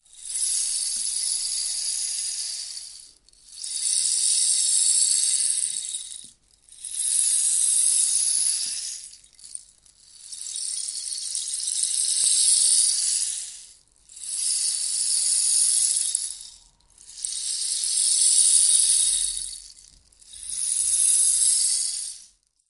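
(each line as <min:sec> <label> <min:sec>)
0:00.1 The rainmaker instrument is moved up and down. 0:09.3
0:10.1 The rainmaker instrument is moved up and down. 0:22.3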